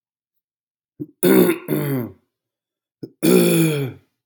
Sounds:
Throat clearing